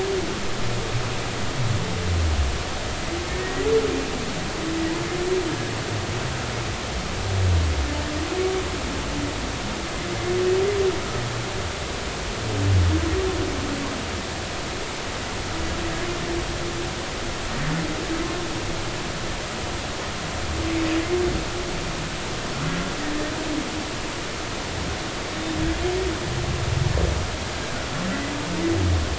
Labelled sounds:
3.3	3.7	humpback whale, 1.8 to 2.0 kHz

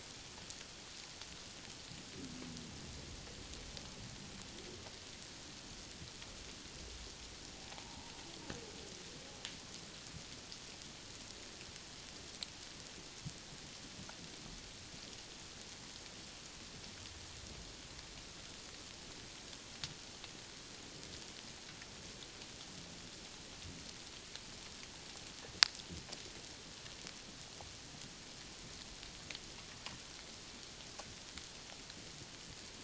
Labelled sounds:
7.7	8.1	humpback whale, 0.78 to 1.0 kHz

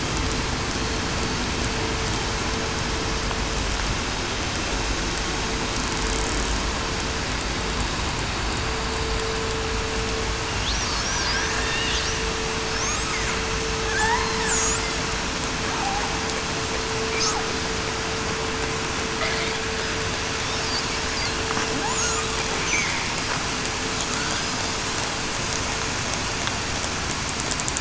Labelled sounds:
0.6	1.0	killer whale, southern resident, 4.2 to 4.3 kHz
11.6	12.0	killer whale, southern resident, 1.8 to 1.9 kHz
13.9	14.3	killer whale, southern resident, 1.5 to 2.1 kHz

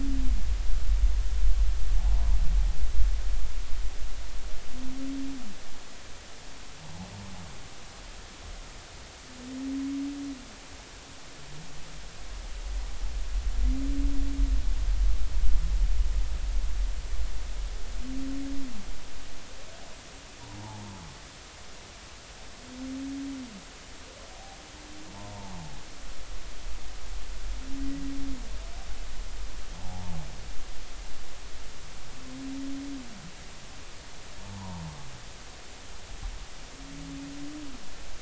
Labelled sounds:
25.1	25.8	humpback whale, 0.80 to 1.1 kHz
29.8	30.2	humpback whale, 0.80 to 0.96 kHz
34.4	34.8	humpback whale, 0.80 to 1.2 kHz

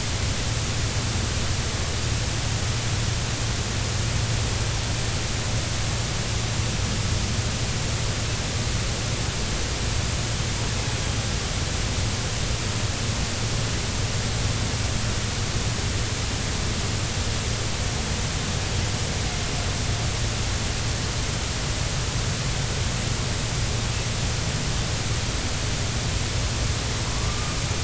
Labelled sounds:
27.2	27.6	killer whale, northern resident, A clan, AB subclan, 1.0 to 1.3 kHz

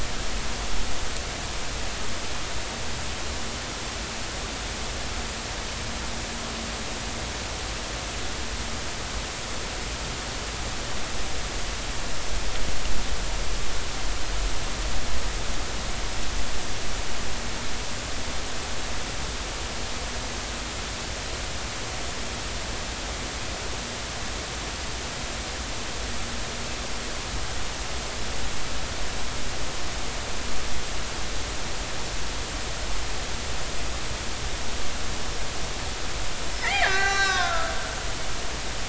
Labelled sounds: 36.6	37.7	killer whale, Bigg's (transient), 0.99 to 6.8 kHz

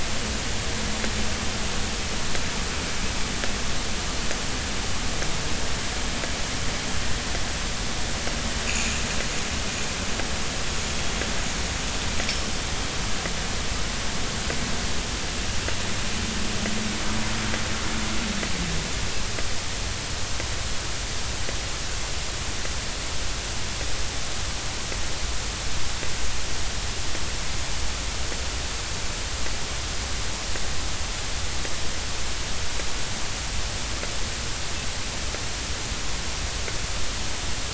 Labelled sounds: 8.7	8.9	anchor noise, 2.3 to 2.8 kHz

